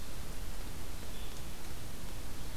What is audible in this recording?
Red-eyed Vireo